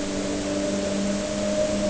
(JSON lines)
{"label": "anthrophony, boat engine", "recorder": "HydroMoth"}